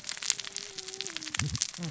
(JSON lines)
{"label": "biophony, cascading saw", "recorder": "SoundTrap 600 or HydroMoth"}